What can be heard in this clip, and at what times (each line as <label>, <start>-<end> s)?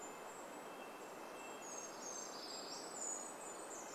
Brown Creeper song, 0-4 s
Golden-crowned Kinglet song, 0-4 s
Red-breasted Nuthatch song, 0-4 s